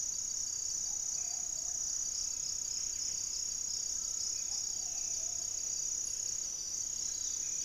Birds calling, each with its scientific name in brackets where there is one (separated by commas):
unidentified bird, Plumbeous Pigeon (Patagioenas plumbea), Black-faced Antthrush (Formicarius analis), Buff-breasted Wren (Cantorchilus leucotis)